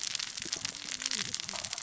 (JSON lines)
{"label": "biophony, cascading saw", "recorder": "SoundTrap 600 or HydroMoth"}